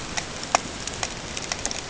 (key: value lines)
label: ambient
recorder: HydroMoth